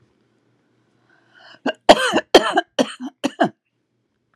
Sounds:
Cough